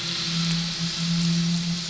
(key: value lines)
label: anthrophony, boat engine
recorder: SoundTrap 500